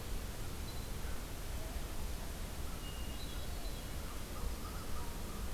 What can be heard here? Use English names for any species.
Hermit Thrush, American Crow